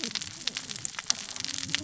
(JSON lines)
{"label": "biophony, cascading saw", "recorder": "SoundTrap 600 or HydroMoth"}